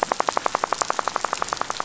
{"label": "biophony, rattle", "recorder": "SoundTrap 500"}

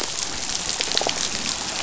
{"label": "biophony", "recorder": "SoundTrap 500"}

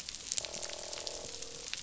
{"label": "biophony, croak", "recorder": "SoundTrap 500"}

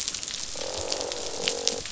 {"label": "biophony, croak", "recorder": "SoundTrap 500"}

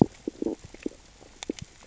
{"label": "biophony, stridulation", "recorder": "SoundTrap 600 or HydroMoth"}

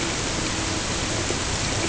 {"label": "ambient", "recorder": "HydroMoth"}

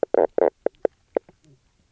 {"label": "biophony, knock croak", "recorder": "SoundTrap 300"}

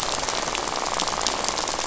{"label": "biophony, rattle", "recorder": "SoundTrap 500"}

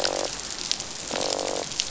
{"label": "biophony, croak", "recorder": "SoundTrap 500"}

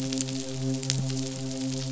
{"label": "biophony, midshipman", "recorder": "SoundTrap 500"}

